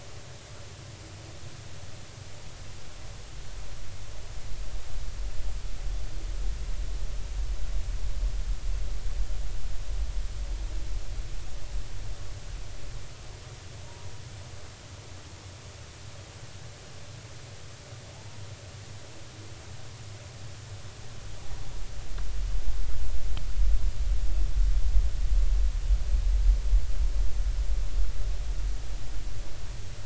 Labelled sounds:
13.8	14.1	humpback whale, 0.90 to 1.0 kHz

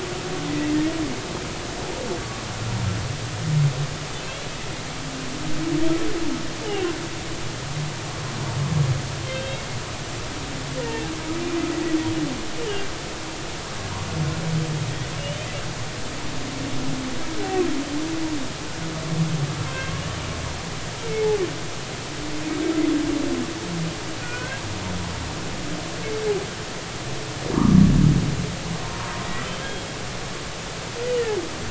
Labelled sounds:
9.2	9.7	humpback whale, 2.6 to 3.3 kHz
10.8	11.1	humpback whale, 1.7 to 2.8 kHz
15.2	15.5	humpback whale, 2.8 to 3.2 kHz
19.7	19.9	humpback whale, 2.6 to 2.7 kHz
24.2	24.6	humpback whale, 1.4 to 2.6 kHz
27.5	27.8	humpback whale, 0.90 to 1.3 kHz
28.8	29.9	humpback whale, 0.90 to 3.3 kHz

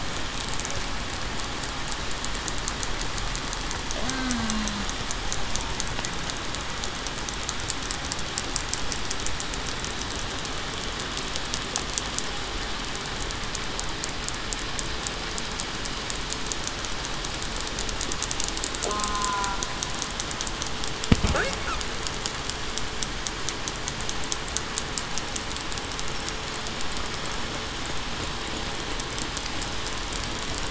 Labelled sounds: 4.0	4.7	killer whale, southern resident, 0.19 to 0.28 kHz
18.9	19.2	killer whale, southern resident, 1.2 to 1.3 kHz

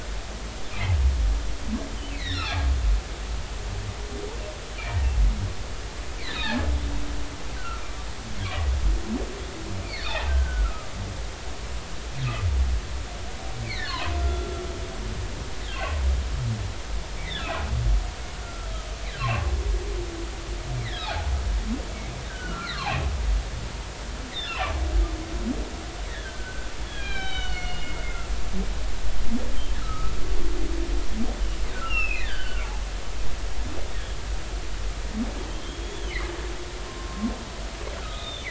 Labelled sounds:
2.1	2.6	humpback whale, 1.7 to 5.8 kHz
6.2	6.6	humpback whale, 1.6 to 4.6 kHz
7.5	7.8	humpback whale, 1.2 to 1.6 kHz
9.9	10.9	humpback whale, 1.2 to 4.8 kHz
13.6	14.6	humpback whale, 0.93 to 3.3 kHz
15.7	16.0	humpback whale, 2.5 to 2.8 kHz
17.2	17.5	humpback whale, 1.6 to 2.4 kHz
18.4	18.7	humpback whale, 1.3 to 1.4 kHz
20.8	21.1	humpback whale, 1.6 to 2.4 kHz
22.3	23.1	humpback whale, 0.80 to 2.9 kHz
24.3	24.7	humpback whale, 2.3 to 5.4 kHz
26.1	28.0	humpback whale, 1.4 to 4.5 kHz
29.8	30.1	humpback whale, 1.2 to 1.5 kHz
31.7	32.7	humpback whale, 1.2 to 5.6 kHz
35.5	36.1	humpback whale, 3.0 to 3.6 kHz
36.9	38.4	humpback whale, 1.0 to 3.9 kHz

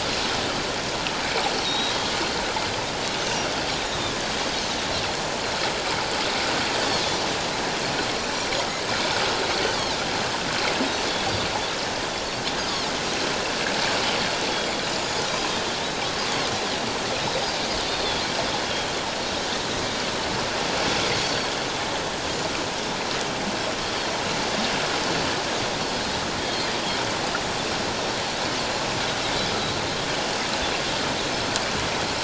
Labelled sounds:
1.5	2.0	Pacific white-sided dolphin, 3.7 to 4.4 kHz
3.2	3.5	Pacific white-sided dolphin, 2.7 to 6.4 kHz
3.8	4.2	Pacific white-sided dolphin, 3.3 to 3.8 kHz
14.9	15.2	Pacific white-sided dolphin, 6.6 to 6.9 kHz
17.9	18.2	Pacific white-sided dolphin, 3.3 to 3.8 kHz
21.2	21.5	Pacific white-sided dolphin, 4.3 to 4.7 kHz
26.4	26.7	Pacific white-sided dolphin, 3.2 to 3.3 kHz

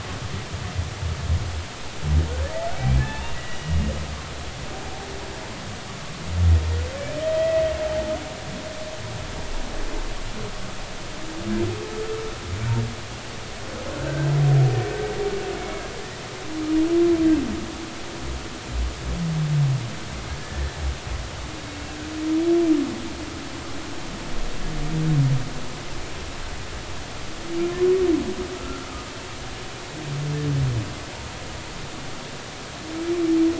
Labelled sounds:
2.8	3.9	humpback whale, 0.83 to 2.9 kHz
7.0	7.7	humpback whale, 1.8 to 2.6 kHz
15.6	16.2	humpback whale, 1.7 to 2.3 kHz
20.4	20.7	humpback whale, 1.7 to 1.9 kHz
28.5	28.9	humpback whale, 1.2 to 1.4 kHz

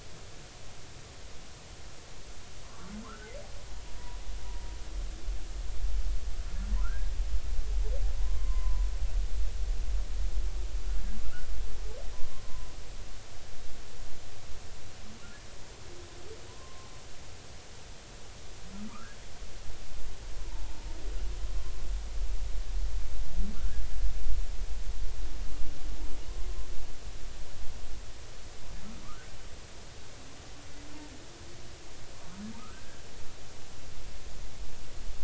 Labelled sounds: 2.6	3.3	humpback whale, 0.99 to 1.6 kHz
6.8	7.1	humpback whale, 0.93 to 1.7 kHz
8.2	8.9	humpback whale, 0.90 to 1.2 kHz
11.2	11.5	humpback whale, 1.3 to 1.6 kHz
12.4	12.8	humpback whale, 0.96 to 1.1 kHz
16.5	16.9	humpback whale, 0.96 to 1.1 kHz
18.9	19.2	humpback whale, 0.90 to 1.7 kHz
20.4	20.9	humpback whale, 0.83 to 1.1 kHz
29.0	29.3	humpback whale, 1.1 to 1.6 kHz
32.6	33.0	humpback whale, 1.2 to 1.7 kHz

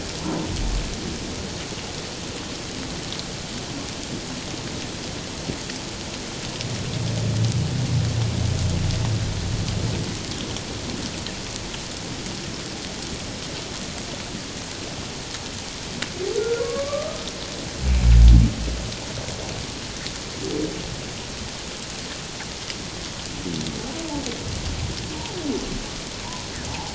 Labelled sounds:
16.4	17.3	humpback whale, 0.94 to 2.4 kHz
26.7	26.9	humpback whale, 0.78 to 1.0 kHz

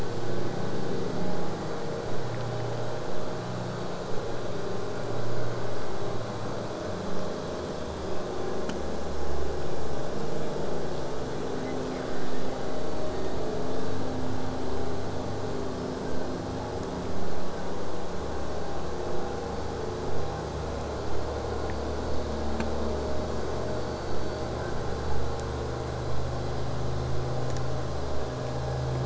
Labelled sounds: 24.1	29.0	vessel noise, 0 to 8.0 kHz

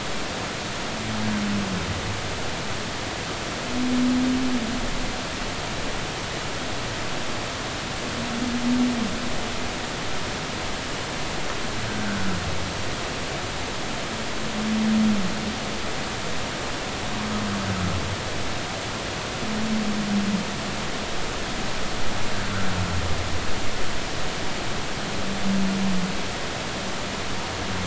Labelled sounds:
11.9	12.4	humpback whale, 1.3 to 1.6 kHz

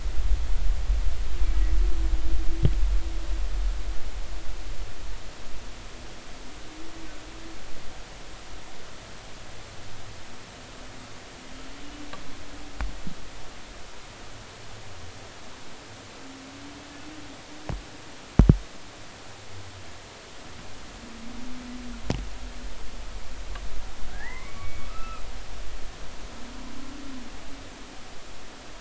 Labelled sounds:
24.1	25.2	humpback whale, 0.80 to 2.7 kHz

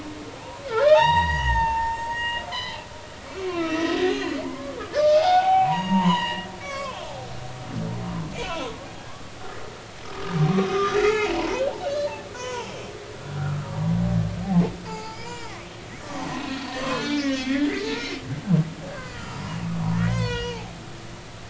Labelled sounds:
0.6	2.8	humpback whale, 0.80 to 6.8 kHz
3.2	7.0	humpback whale, 0.80 to 6.9 kHz
8.4	8.7	humpback whale, 1.2 to 2.8 kHz
10.7	12.7	humpback whale, 0.80 to 6.5 kHz
13.4	13.6	humpback whale, 1.2 to 1.6 kHz
14.8	15.6	humpback whale, 0.80 to 5.2 kHz
16.0	18.2	humpback whale, 0.96 to 6.1 kHz
18.9	19.6	humpback whale, 0.90 to 2.9 kHz
19.9	20.7	humpback whale, 0.80 to 6.4 kHz

